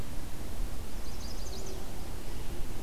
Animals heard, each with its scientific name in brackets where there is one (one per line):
Chestnut-sided Warbler (Setophaga pensylvanica)